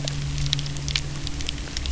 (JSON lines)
{"label": "anthrophony, boat engine", "recorder": "SoundTrap 300"}